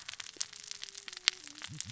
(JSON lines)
{"label": "biophony, cascading saw", "recorder": "SoundTrap 600 or HydroMoth"}